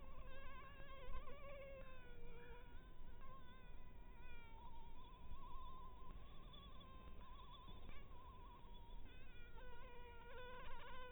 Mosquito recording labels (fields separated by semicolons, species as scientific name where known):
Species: Anopheles harrisoni; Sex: female; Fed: blood-fed; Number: one; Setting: cup